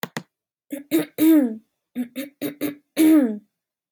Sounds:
Throat clearing